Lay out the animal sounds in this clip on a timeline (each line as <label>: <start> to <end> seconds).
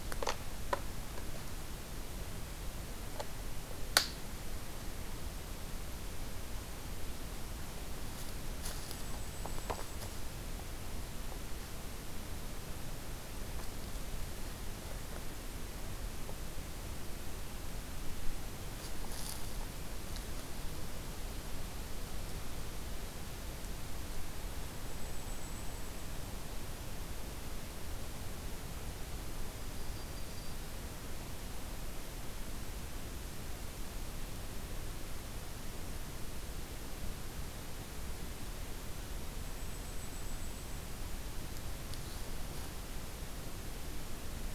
Blackpoll Warbler (Setophaga striata): 8.6 to 10.2 seconds
Blackpoll Warbler (Setophaga striata): 24.5 to 26.2 seconds
Yellow-rumped Warbler (Setophaga coronata): 29.5 to 30.7 seconds
Blackpoll Warbler (Setophaga striata): 39.3 to 41.2 seconds